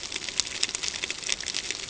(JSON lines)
{"label": "ambient", "recorder": "HydroMoth"}